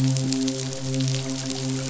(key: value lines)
label: biophony, midshipman
recorder: SoundTrap 500